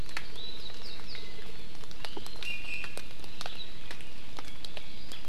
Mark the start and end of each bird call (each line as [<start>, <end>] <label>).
[1.91, 3.11] Iiwi (Drepanis coccinea)